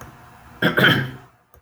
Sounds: Throat clearing